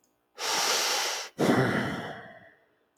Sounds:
Sigh